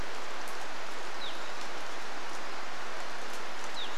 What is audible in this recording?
Evening Grosbeak call, rain